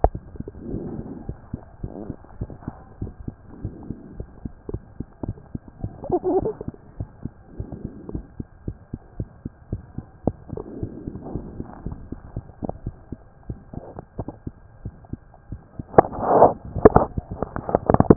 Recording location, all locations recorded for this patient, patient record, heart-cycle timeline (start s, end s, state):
mitral valve (MV)
aortic valve (AV)+pulmonary valve (PV)+tricuspid valve (TV)+mitral valve (MV)
#Age: Child
#Sex: Female
#Height: 112.0 cm
#Weight: 22.3 kg
#Pregnancy status: False
#Murmur: Present
#Murmur locations: pulmonary valve (PV)+tricuspid valve (TV)
#Most audible location: pulmonary valve (PV)
#Systolic murmur timing: Holosystolic
#Systolic murmur shape: Plateau
#Systolic murmur grading: I/VI
#Systolic murmur pitch: Low
#Systolic murmur quality: Blowing
#Diastolic murmur timing: nan
#Diastolic murmur shape: nan
#Diastolic murmur grading: nan
#Diastolic murmur pitch: nan
#Diastolic murmur quality: nan
#Outcome: Abnormal
#Campaign: 2015 screening campaign
0.00	7.54	unannotated
7.54	7.68	S1
7.68	7.78	systole
7.78	7.90	S2
7.90	8.10	diastole
8.10	8.24	S1
8.24	8.36	systole
8.36	8.44	S2
8.44	8.66	diastole
8.66	8.76	S1
8.76	8.88	systole
8.88	8.98	S2
8.98	9.18	diastole
9.18	9.28	S1
9.28	9.42	systole
9.42	9.50	S2
9.50	9.72	diastole
9.72	9.84	S1
9.84	9.94	systole
9.94	10.04	S2
10.04	10.26	diastole
10.26	10.36	S1
10.36	10.50	systole
10.50	10.60	S2
10.60	10.78	diastole
10.78	10.90	S1
10.90	11.04	systole
11.04	11.11	S2
11.11	11.32	diastole
11.32	11.43	S1
11.43	11.56	systole
11.56	11.64	S2
11.64	11.84	diastole
11.84	11.93	S1
11.93	12.09	systole
12.09	12.16	S2
12.16	12.34	diastole
12.34	12.44	S1
12.44	12.60	systole
12.60	12.66	S2
12.66	12.84	diastole
12.84	12.94	S1
12.94	13.08	systole
13.08	13.20	S2
13.20	13.47	diastole
13.47	13.56	S1
13.56	13.75	systole
13.75	13.82	S2
13.82	14.16	diastole
14.16	14.26	S1
14.26	14.44	systole
14.44	14.54	S2
14.54	14.82	diastole
14.82	14.94	S1
14.94	15.10	systole
15.10	15.20	S2
15.20	15.50	diastole
15.50	15.62	S1
15.62	15.78	systole
15.78	15.85	S2
15.85	18.16	unannotated